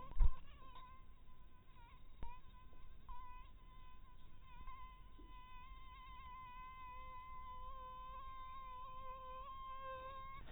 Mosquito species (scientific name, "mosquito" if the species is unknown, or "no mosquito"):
mosquito